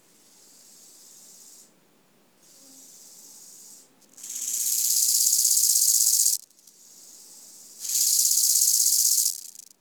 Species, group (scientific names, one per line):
Chorthippus biguttulus
Orthoptera